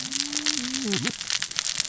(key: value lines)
label: biophony, cascading saw
recorder: SoundTrap 600 or HydroMoth